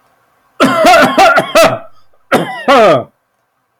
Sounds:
Cough